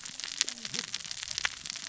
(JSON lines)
{"label": "biophony, cascading saw", "recorder": "SoundTrap 600 or HydroMoth"}